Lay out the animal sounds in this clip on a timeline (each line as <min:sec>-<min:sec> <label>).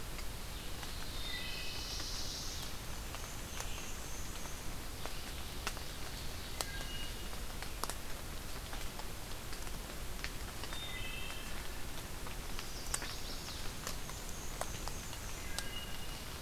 0:00.0-0:05.4 Red-eyed Vireo (Vireo olivaceus)
0:00.6-0:02.8 Black-throated Blue Warbler (Setophaga caerulescens)
0:01.2-0:02.0 Wood Thrush (Hylocichla mustelina)
0:02.9-0:04.7 Black-and-white Warbler (Mniotilta varia)
0:04.9-0:07.0 Ovenbird (Seiurus aurocapilla)
0:06.6-0:07.5 Wood Thrush (Hylocichla mustelina)
0:10.6-0:11.5 Wood Thrush (Hylocichla mustelina)
0:12.3-0:13.7 Chestnut-sided Warbler (Setophaga pensylvanica)
0:13.9-0:15.8 Black-and-white Warbler (Mniotilta varia)
0:15.5-0:16.4 Wood Thrush (Hylocichla mustelina)